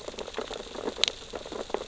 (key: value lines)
label: biophony, sea urchins (Echinidae)
recorder: SoundTrap 600 or HydroMoth